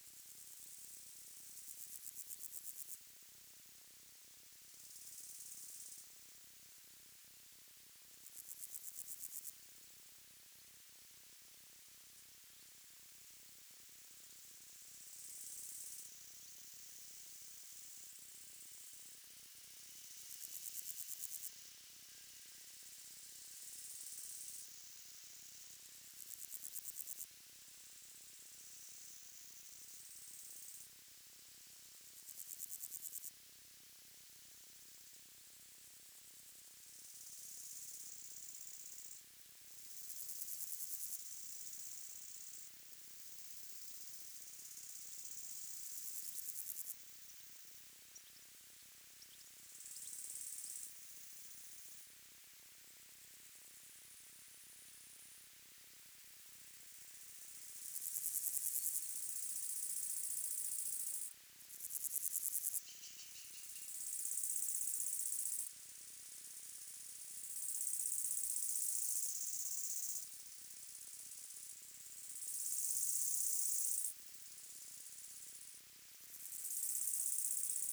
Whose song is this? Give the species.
Pseudochorthippus parallelus